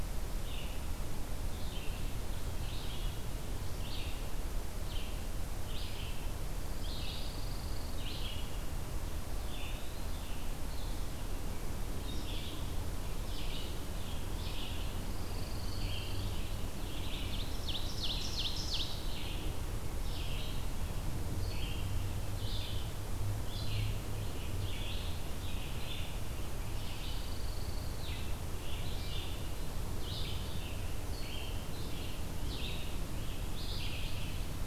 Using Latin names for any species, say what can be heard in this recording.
Vireo olivaceus, Setophaga pinus, Seiurus aurocapilla, Piranga olivacea